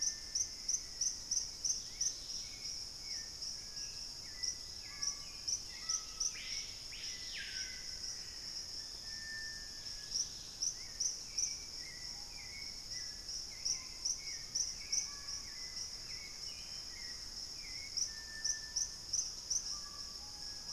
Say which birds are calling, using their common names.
Black-faced Antthrush, Screaming Piha, Hauxwell's Thrush, Dusky-capped Greenlet, Thrush-like Wren